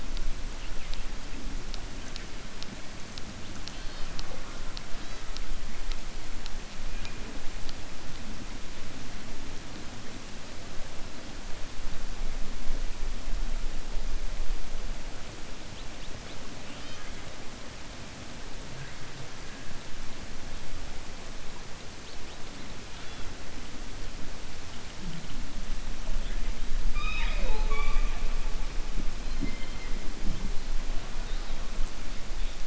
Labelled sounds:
26.8	28.2	killer whale, 0.09 to 5.1 kHz

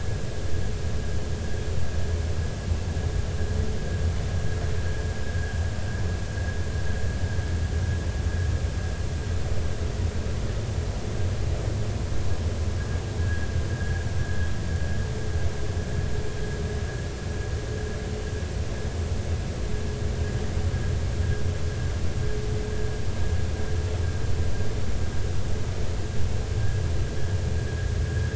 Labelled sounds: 13.2	14.5	vessel noise, 1.5 to 1.7 kHz

